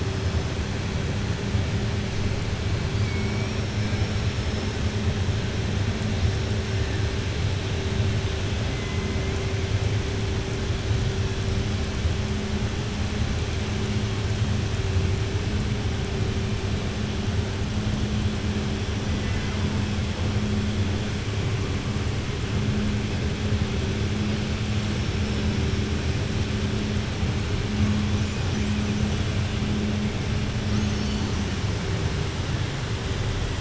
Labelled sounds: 19.1	19.6	killer whale, southern resident, 1.0 to 3.0 kHz

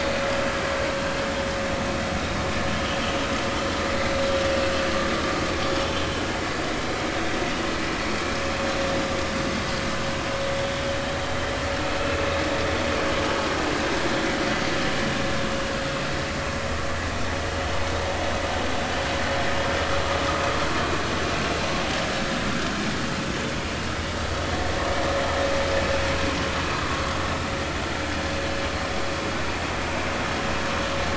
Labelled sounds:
5.6	5.9	vessel noise, 3.3 to 3.6 kHz
26.7	27.0	vessel noise, 1.1 to 1.3 kHz

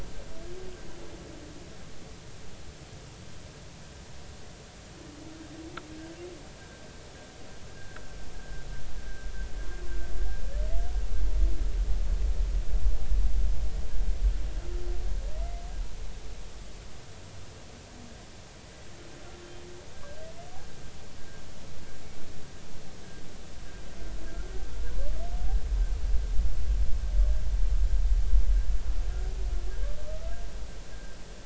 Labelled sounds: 6.6	6.8	humpback whale, 1.5 to 1.7 kHz
7.7	8.6	humpback whale, 1.2 to 1.7 kHz
19.9	20.3	humpback whale, 1.5 to 1.7 kHz

